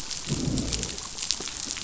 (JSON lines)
{"label": "biophony, growl", "recorder": "SoundTrap 500"}